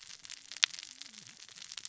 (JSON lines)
{"label": "biophony, cascading saw", "recorder": "SoundTrap 600 or HydroMoth"}